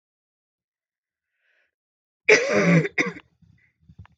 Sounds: Cough